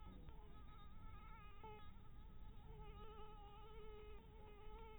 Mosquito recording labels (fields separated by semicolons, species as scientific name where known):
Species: Anopheles maculatus; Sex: female; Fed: blood-fed; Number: one; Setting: cup